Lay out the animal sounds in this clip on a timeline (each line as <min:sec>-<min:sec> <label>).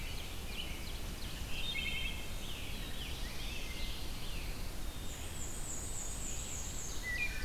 0:00.0-0:00.9 American Robin (Turdus migratorius)
0:00.0-0:01.8 Ovenbird (Seiurus aurocapilla)
0:01.3-0:02.3 Wood Thrush (Hylocichla mustelina)
0:02.1-0:04.6 Scarlet Tanager (Piranga olivacea)
0:02.5-0:03.9 Black-throated Blue Warbler (Setophaga caerulescens)
0:03.3-0:03.9 Wood Thrush (Hylocichla mustelina)
0:03.5-0:04.8 Pine Warbler (Setophaga pinus)
0:04.7-0:05.7 Black-capped Chickadee (Poecile atricapillus)
0:04.9-0:07.1 Black-and-white Warbler (Mniotilta varia)
0:06.3-0:07.4 Ovenbird (Seiurus aurocapilla)